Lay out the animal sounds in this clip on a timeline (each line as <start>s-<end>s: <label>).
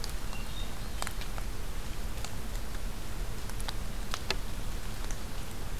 0.1s-1.3s: Hermit Thrush (Catharus guttatus)